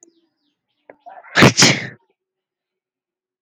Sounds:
Sneeze